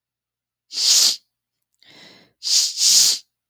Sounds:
Sniff